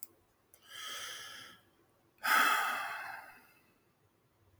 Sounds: Sigh